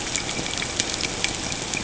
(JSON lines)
{"label": "ambient", "recorder": "HydroMoth"}